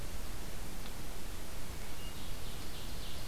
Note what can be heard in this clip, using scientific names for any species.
Catharus guttatus, Seiurus aurocapilla